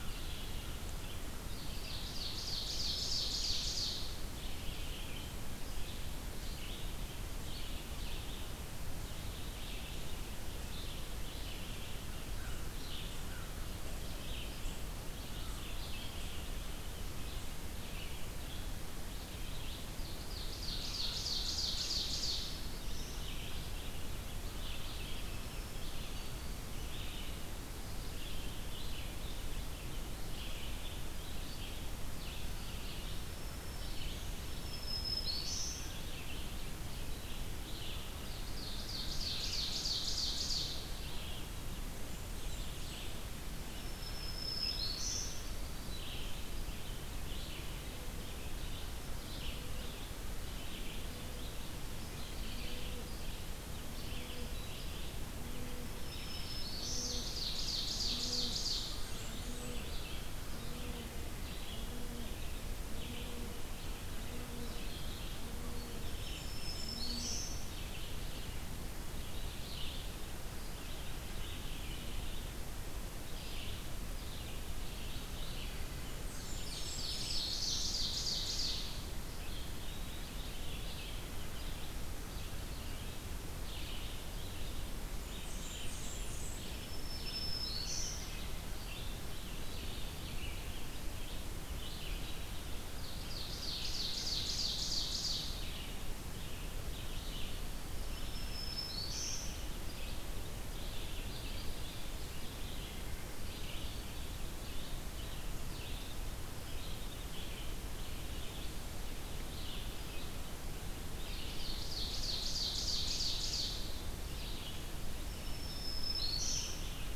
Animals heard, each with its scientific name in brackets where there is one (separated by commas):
American Crow (Corvus brachyrhynchos), Black-throated Green Warbler (Setophaga virens), Blackburnian Warbler (Setophaga fusca), Red-eyed Vireo (Vireo olivaceus), Ovenbird (Seiurus aurocapilla)